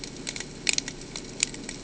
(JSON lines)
{"label": "ambient", "recorder": "HydroMoth"}